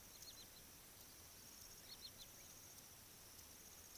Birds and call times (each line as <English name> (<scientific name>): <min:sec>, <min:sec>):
Wood Sandpiper (Tringa glareola): 0:02.0